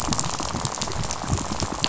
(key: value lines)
label: biophony, rattle
recorder: SoundTrap 500